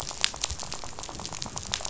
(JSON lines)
{"label": "biophony, rattle", "recorder": "SoundTrap 500"}